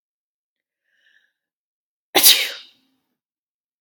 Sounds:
Sneeze